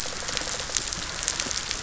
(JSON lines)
{"label": "biophony", "recorder": "SoundTrap 500"}